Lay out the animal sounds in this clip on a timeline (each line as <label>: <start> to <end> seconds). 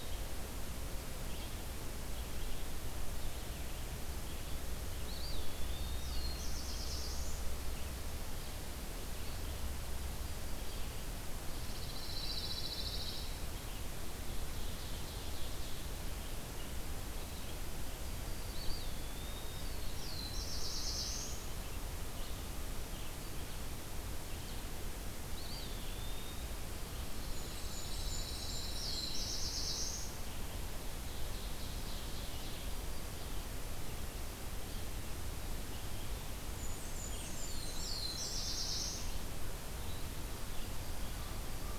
Red-eyed Vireo (Vireo olivaceus): 0.0 to 41.3 seconds
Eastern Wood-Pewee (Contopus virens): 4.9 to 6.3 seconds
Black-throated Blue Warbler (Setophaga caerulescens): 5.9 to 7.4 seconds
Pine Warbler (Setophaga pinus): 11.6 to 13.3 seconds
Ovenbird (Seiurus aurocapilla): 13.9 to 16.3 seconds
Eastern Wood-Pewee (Contopus virens): 18.5 to 19.8 seconds
Black-throated Blue Warbler (Setophaga caerulescens): 19.3 to 21.6 seconds
Eastern Wood-Pewee (Contopus virens): 25.2 to 26.5 seconds
Blackburnian Warbler (Setophaga fusca): 27.2 to 29.2 seconds
Pine Warbler (Setophaga pinus): 27.2 to 29.1 seconds
Black-throated Blue Warbler (Setophaga caerulescens): 28.6 to 30.3 seconds
Ovenbird (Seiurus aurocapilla): 30.7 to 32.9 seconds
Blackburnian Warbler (Setophaga fusca): 36.2 to 38.4 seconds
Black-throated Blue Warbler (Setophaga caerulescens): 37.3 to 39.0 seconds
Yellow-rumped Warbler (Setophaga coronata): 40.1 to 41.8 seconds